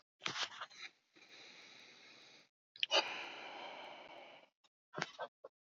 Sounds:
Sigh